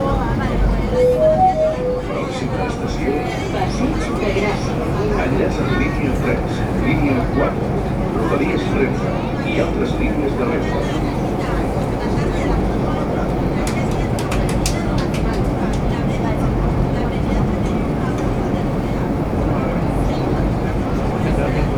Is the space crowded with people?
yes